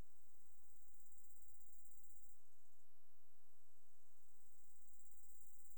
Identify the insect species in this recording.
Chorthippus brunneus